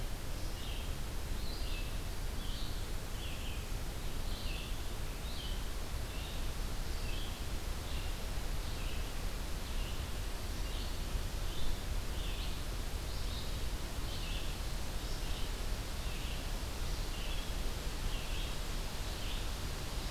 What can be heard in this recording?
Red-eyed Vireo